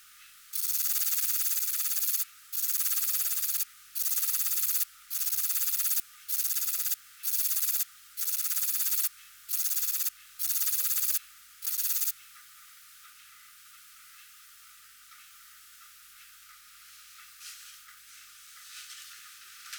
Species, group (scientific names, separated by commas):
Rhacocleis lithoscirtetes, Orthoptera